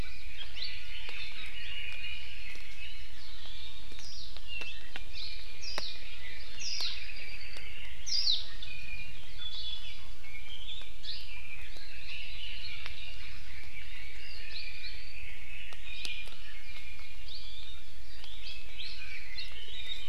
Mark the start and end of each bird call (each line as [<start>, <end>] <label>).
[0.00, 1.79] Warbling White-eye (Zosterops japonicus)
[0.59, 2.69] Red-billed Leiothrix (Leiothrix lutea)
[3.99, 4.29] Warbling White-eye (Zosterops japonicus)
[4.49, 6.59] Red-billed Leiothrix (Leiothrix lutea)
[5.59, 5.89] Warbling White-eye (Zosterops japonicus)
[6.59, 6.99] Warbling White-eye (Zosterops japonicus)
[6.79, 7.89] Apapane (Himatione sanguinea)
[7.99, 8.39] Warbling White-eye (Zosterops japonicus)
[8.59, 10.19] Iiwi (Drepanis coccinea)
[10.99, 14.99] Red-billed Leiothrix (Leiothrix lutea)
[15.79, 17.19] Iiwi (Drepanis coccinea)
[18.29, 20.09] Red-billed Leiothrix (Leiothrix lutea)